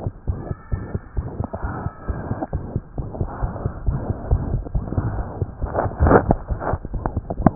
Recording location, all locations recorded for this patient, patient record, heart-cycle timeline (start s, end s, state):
tricuspid valve (TV)
pulmonary valve (PV)+tricuspid valve (TV)+mitral valve (MV)
#Age: Child
#Sex: Male
#Height: 100.0 cm
#Weight: 16.7 kg
#Pregnancy status: False
#Murmur: Present
#Murmur locations: mitral valve (MV)+pulmonary valve (PV)+tricuspid valve (TV)
#Most audible location: mitral valve (MV)
#Systolic murmur timing: Holosystolic
#Systolic murmur shape: Plateau
#Systolic murmur grading: I/VI
#Systolic murmur pitch: Medium
#Systolic murmur quality: Blowing
#Diastolic murmur timing: nan
#Diastolic murmur shape: nan
#Diastolic murmur grading: nan
#Diastolic murmur pitch: nan
#Diastolic murmur quality: nan
#Outcome: Abnormal
#Campaign: 2015 screening campaign
0.00	0.24	unannotated
0.24	0.38	S1
0.38	0.48	systole
0.48	0.56	S2
0.56	0.68	diastole
0.68	0.82	S1
0.82	0.93	systole
0.93	1.02	S2
1.02	1.13	diastole
1.13	1.28	S1
1.28	1.38	systole
1.38	1.46	S2
1.46	1.61	diastole
1.61	1.70	S1
1.70	1.82	systole
1.82	1.93	S2
1.93	2.06	diastole
2.06	2.18	S1
2.18	2.28	systole
2.28	2.40	S2
2.40	2.52	diastole
2.52	2.64	S1
2.64	2.74	systole
2.74	2.82	S2
2.82	2.95	diastole
2.95	3.08	S1
3.08	3.18	systole
3.18	3.28	S2
3.28	3.40	diastole
3.40	3.52	S1
3.52	3.62	systole
3.62	3.72	S2
3.72	3.84	diastole
3.84	3.94	S1
3.94	4.08	systole
4.08	4.16	S2
4.16	4.28	diastole
4.28	4.40	S1
4.40	4.52	systole
4.52	4.62	S2
4.62	4.73	diastole
4.73	4.84	S1
4.84	7.55	unannotated